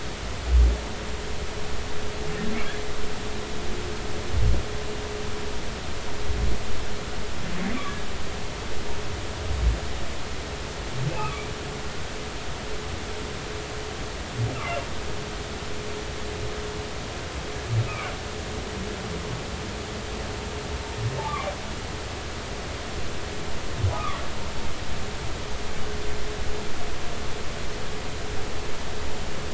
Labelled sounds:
11.1	11.5	humpback whale, 1.1 to 2.7 kHz
17.8	18.1	humpback whale, 1.1 to 2.7 kHz
23.9	24.2	humpback whale, 1.0 to 1.3 kHz

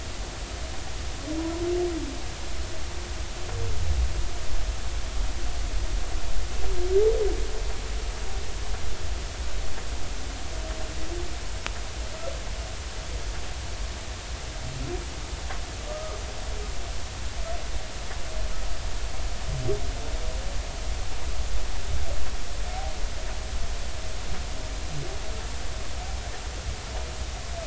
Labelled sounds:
15.9	16.2	humpback whale, 1.2 to 1.3 kHz

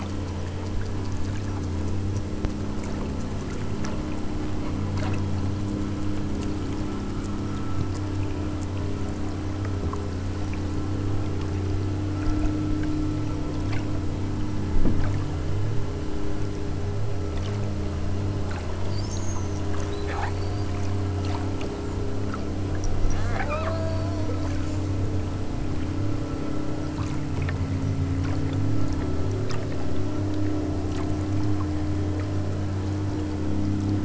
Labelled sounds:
23.3	24.9	killer whale, southern Alaska resident, 0.36 to 4.0 kHz

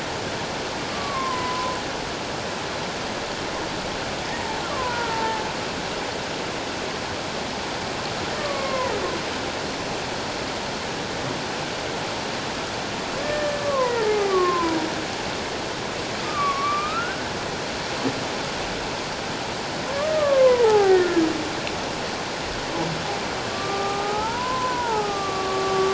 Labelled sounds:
0.9	1.8	humpback whale, 0.94 to 1.2 kHz
4.3	5.4	humpback whale, 0.81 to 2.0 kHz
8.4	8.9	humpback whale, 0.94 to 2.2 kHz
13.2	14.8	humpback whale, 0.78 to 2.2 kHz
16.2	17.2	humpback whale, 1.0 to 1.6 kHz
20.0	21.2	humpback whale, 0.78 to 2.0 kHz
23.5	25.9	humpback whale, 0.78 to 1.5 kHz

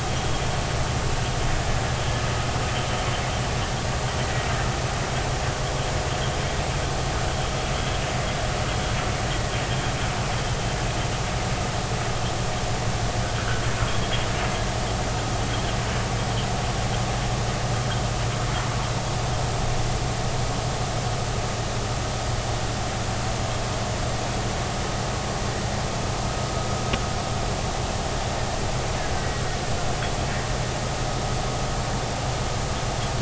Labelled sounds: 4.2	4.5	killer whale, Bigg's (transient), 1.9 to 2.0 kHz
29.2	29.4	killer whale, Bigg's (transient), 1.9 to 2.0 kHz

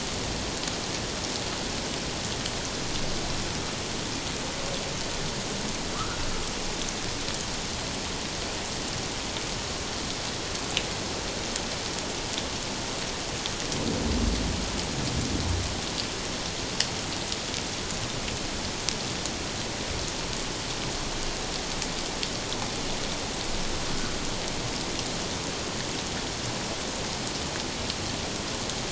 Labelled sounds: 5.9	6.2	humpback whale, 1.0 to 1.5 kHz

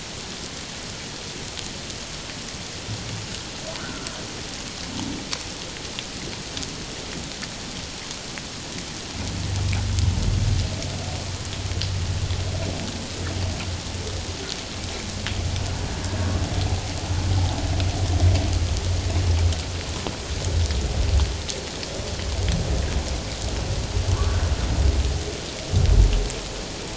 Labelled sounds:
3.8	4.1	humpback whale, 1.2 to 1.6 kHz

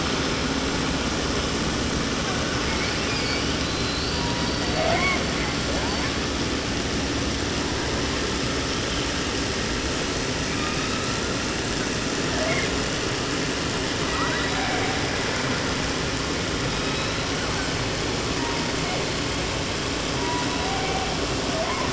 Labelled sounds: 2.6	4.7	killer whale, southern resident, J pod, call S01, 0.30 to 5.9 kHz
4.7	5.3	killer whale, southern resident, 0.30 to 4.9 kHz
5.6	6.3	killer whale, 0.33 to 1.6 kHz
10.4	11.5	killer whale, 0.71 to 4.7 kHz
12.3	12.8	killer whale, 0.26 to 3.6 kHz
14.0	15.0	killer whale, southern resident, J pod, call S01, 0.30 to 4.3 kHz
16.6	17.8	killer whale, 0.42 to 6.5 kHz
18.2	19.2	killer whale, 0.42 to 2.8 kHz
20.2	21.1	killer whale, 0.52 to 4.3 kHz
21.5	21.9	killer whale, 0.37 to 2.6 kHz

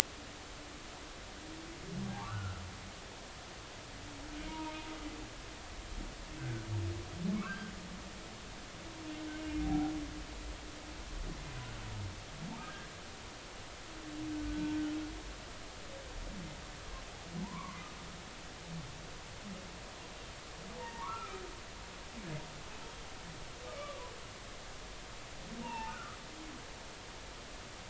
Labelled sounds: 2.1	2.6	humpback whale, 0.80 to 1.5 kHz
4.5	4.7	humpback whale, 0.86 to 1.0 kHz
6.4	6.7	humpback whale, 1.4 to 1.7 kHz
7.3	7.7	humpback whale, 0.99 to 1.7 kHz
9.6	9.9	humpback whale, 0.80 to 0.83 kHz
12.6	12.9	humpback whale, 1.5 to 1.8 kHz
14.5	14.8	humpback whale, 1.47 to 1.54 kHz
17.4	17.8	humpback whale, 0.83 to 1.2 kHz
20.8	21.4	humpback whale, 0.86 to 2.5 kHz
23.8	24.1	humpback whale, 0.93 to 1.2 kHz
25.6	26.2	humpback whale, 0.83 to 2.9 kHz

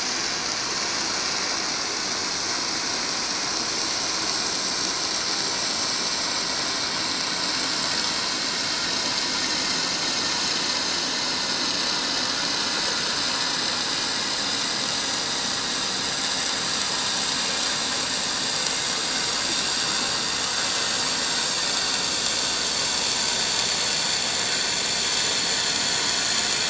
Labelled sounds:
8.4	8.6	vessel noise, 7.0 to 7.2 kHz
9.5	9.7	vessel noise, 6.2 to 6.5 kHz
10.0	11.1	vessel noise, 6.1 to 6.4 kHz
11.4	11.7	vessel noise, 6.0 to 6.2 kHz
22.9	23.4	vessel noise, 6.0 to 7.1 kHz

